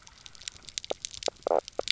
{"label": "biophony, knock croak", "recorder": "SoundTrap 300"}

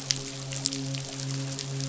{"label": "biophony, midshipman", "recorder": "SoundTrap 500"}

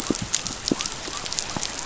{"label": "biophony", "recorder": "SoundTrap 500"}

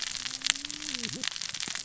{"label": "biophony, cascading saw", "recorder": "SoundTrap 600 or HydroMoth"}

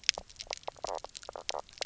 {"label": "biophony, knock croak", "recorder": "SoundTrap 300"}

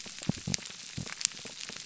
{"label": "biophony, pulse", "recorder": "SoundTrap 300"}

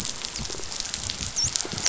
{"label": "biophony, dolphin", "recorder": "SoundTrap 500"}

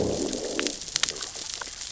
{"label": "biophony, growl", "recorder": "SoundTrap 600 or HydroMoth"}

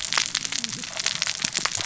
{"label": "biophony, cascading saw", "recorder": "SoundTrap 600 or HydroMoth"}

